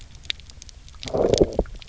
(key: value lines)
label: biophony, low growl
recorder: SoundTrap 300